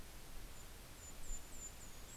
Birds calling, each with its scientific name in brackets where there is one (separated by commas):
Yellow-rumped Warbler (Setophaga coronata)